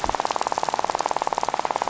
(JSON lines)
{"label": "biophony, rattle", "recorder": "SoundTrap 500"}